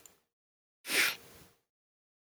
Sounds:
Sniff